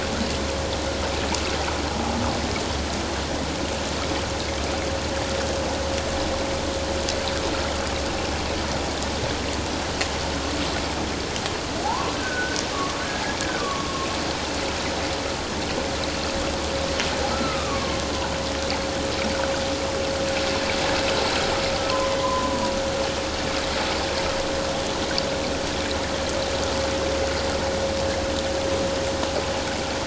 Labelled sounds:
11.8	12.6	humpback whale, 0.78 to 1.6 kHz
13.6	14.1	humpback whale, 1.0 to 1.2 kHz
17.3	18.0	humpback whale, 1.0 to 2.6 kHz
22.2	22.5	humpback whale, 0.94 to 1.2 kHz

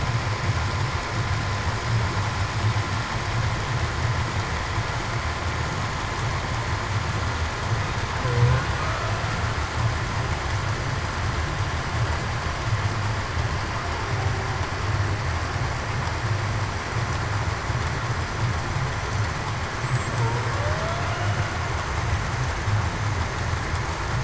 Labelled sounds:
20.6	21.0	killer whale, Bigg's (transient), 0.56 to 0.70 kHz

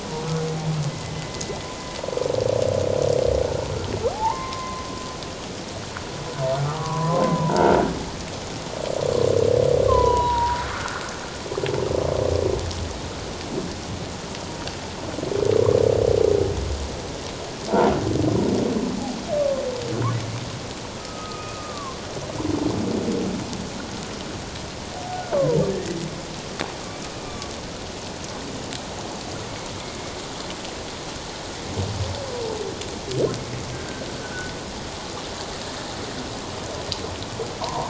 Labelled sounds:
4.1	4.9	humpback whale, 0.78 to 2.2 kHz
6.6	7.7	humpback whale, 0.84 to 1.4 kHz
7.5	7.8	croaking sound likely from a nearby submerged object, 1.3 to 1.6 kHz
9.9	11.0	humpback whale, 0.84 to 3.0 kHz
19.4	19.6	humpback whale, 1.0 to 1.2 kHz
21.0	22.0	humpback whale, 1.0 to 2.6 kHz
25.3	26.0	humpback whale, 0.84 to 2.0 kHz
27.2	27.5	humpback whale, 1.1 to 1.2 kHz
33.7	34.5	humpback whale, 1.4 to 1.6 kHz
37.6	37.8	humpback whale, 0.88 to 1.1 kHz

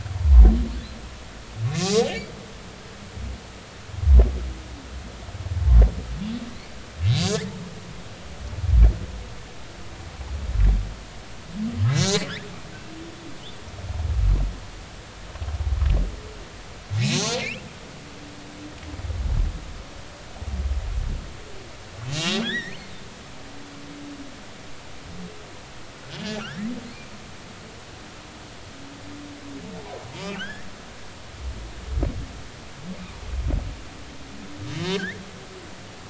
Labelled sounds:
1.7	2.0	humpback whale, 2.4 to 2.6 kHz
7.2	7.5	humpback whale, 1.4 to 2.2 kHz
12.0	12.3	humpback whale, 1.8 to 4.4 kHz
17.0	18.4	humpback whale, 2.0 to 6.4 kHz
22.1	22.9	humpback whale, 1.5 to 4.4 kHz
26.1	26.7	humpback whale, 1.3 to 3.1 kHz
30.2	30.7	humpback whale, 1.4 to 3.5 kHz
34.9	35.3	humpback whale, 1.4 to 3.8 kHz

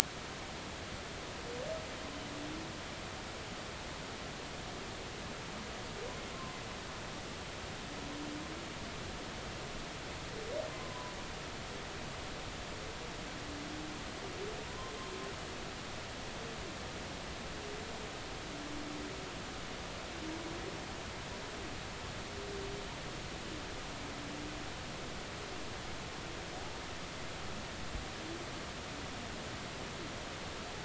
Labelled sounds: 6.3	6.6	humpback whale, 0.96 to 1.1 kHz
10.7	11.1	humpback whale, 0.96 to 1.1 kHz
14.6	14.9	humpback whale, 0.90 to 1.1 kHz

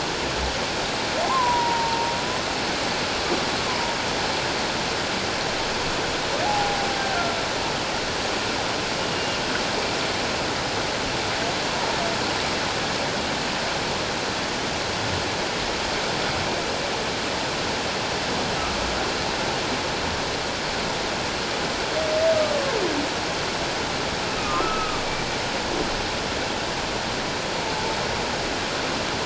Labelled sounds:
1.2	2.1	humpback whale, 0.88 to 1.1 kHz
3.6	4.0	humpback whale, 0.91 to 1.1 kHz
6.4	6.8	humpback whale, 0.78 to 0.91 kHz
9.0	9.4	humpback whale, 2.8 to 2.9 kHz
18.6	18.8	humpback whale, 1.1 to 1.4 kHz
24.4	25.0	humpback whale, 1.0 to 1.4 kHz

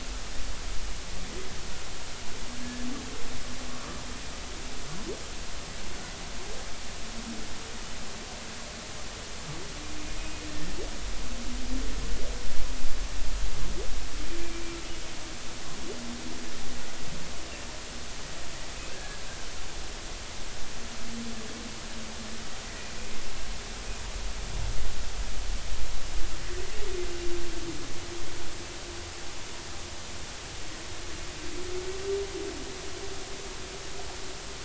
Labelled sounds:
2.6	2.9	humpback whale, 1.7 to 1.8 kHz
3.7	4.0	humpback whale, 1.1 to 1.3 kHz
18.9	19.2	humpback whale, 1.5 to 1.8 kHz

